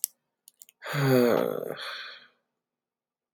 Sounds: Sigh